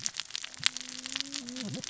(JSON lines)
{"label": "biophony, cascading saw", "recorder": "SoundTrap 600 or HydroMoth"}